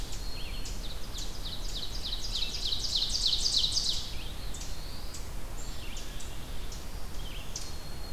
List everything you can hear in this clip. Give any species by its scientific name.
Seiurus aurocapilla, Vireo olivaceus, Setophaga caerulescens, Setophaga virens